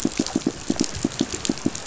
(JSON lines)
{"label": "biophony, pulse", "recorder": "SoundTrap 500"}